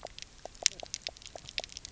{"label": "biophony, knock croak", "recorder": "SoundTrap 300"}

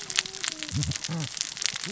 {"label": "biophony, cascading saw", "recorder": "SoundTrap 600 or HydroMoth"}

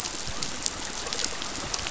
{"label": "biophony", "recorder": "SoundTrap 500"}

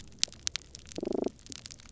{"label": "biophony, damselfish", "recorder": "SoundTrap 300"}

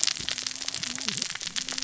{"label": "biophony, cascading saw", "recorder": "SoundTrap 600 or HydroMoth"}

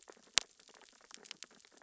{"label": "biophony, sea urchins (Echinidae)", "recorder": "SoundTrap 600 or HydroMoth"}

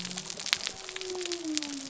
{"label": "biophony", "recorder": "SoundTrap 300"}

